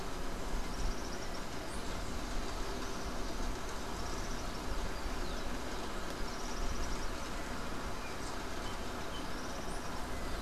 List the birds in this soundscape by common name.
Common Tody-Flycatcher